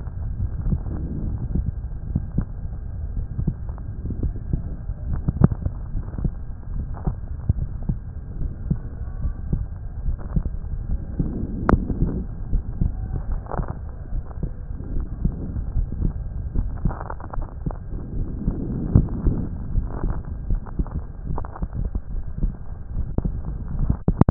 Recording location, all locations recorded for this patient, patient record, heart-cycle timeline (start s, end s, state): aortic valve (AV)
aortic valve (AV)+pulmonary valve (PV)+tricuspid valve (TV)+mitral valve (MV)
#Age: Adolescent
#Sex: Male
#Height: nan
#Weight: nan
#Pregnancy status: False
#Murmur: Absent
#Murmur locations: nan
#Most audible location: nan
#Systolic murmur timing: nan
#Systolic murmur shape: nan
#Systolic murmur grading: nan
#Systolic murmur pitch: nan
#Systolic murmur quality: nan
#Diastolic murmur timing: nan
#Diastolic murmur shape: nan
#Diastolic murmur grading: nan
#Diastolic murmur pitch: nan
#Diastolic murmur quality: nan
#Outcome: Abnormal
#Campaign: 2015 screening campaign
0.00	5.89	unannotated
5.89	6.06	S1
6.06	6.22	systole
6.22	6.34	S2
6.34	6.69	diastole
6.69	6.86	S1
6.86	7.00	systole
7.00	7.16	S2
7.16	7.46	diastole
7.46	7.68	S1
7.68	7.86	systole
7.86	7.98	S2
7.98	8.40	diastole
8.40	8.52	S1
8.52	8.66	systole
8.66	8.80	S2
8.80	9.20	diastole
9.20	9.34	S1
9.34	9.50	systole
9.50	9.66	S2
9.66	10.04	diastole
10.04	10.18	S1
10.18	10.32	systole
10.32	10.44	S2
10.44	10.86	diastole
10.86	11.02	S1
11.02	11.15	systole
11.15	11.28	S2
11.28	11.66	diastole
11.66	11.84	S1
11.84	12.00	systole
12.00	12.14	S2
12.14	12.50	diastole
12.50	12.64	S1
12.64	12.79	systole
12.79	12.92	S2
12.92	13.27	diastole
13.27	13.42	S1
13.42	13.55	systole
13.55	13.68	S2
13.68	14.09	diastole
14.09	14.24	S1
14.24	14.39	systole
14.39	14.52	S2
14.52	14.90	diastole
14.90	15.06	S1
15.06	15.20	systole
15.20	15.32	S2
15.32	15.74	diastole
15.74	15.88	S1
15.88	16.00	systole
16.00	16.14	S2
16.14	16.52	diastole
16.52	16.69	S1
16.69	16.82	systole
16.82	16.94	S2
16.94	17.32	diastole
17.32	17.46	S1
17.46	17.62	systole
17.62	17.74	S2
17.74	18.14	diastole
18.14	18.28	S1
18.28	18.43	systole
18.43	18.58	S2
18.58	18.94	diastole
18.94	19.10	S1
19.10	19.23	systole
19.23	19.38	S2
19.38	19.71	diastole
19.71	19.86	S1
19.86	24.30	unannotated